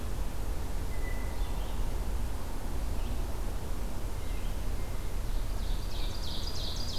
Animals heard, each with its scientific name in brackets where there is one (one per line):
Red-eyed Vireo (Vireo olivaceus)
Blue Jay (Cyanocitta cristata)
Ovenbird (Seiurus aurocapilla)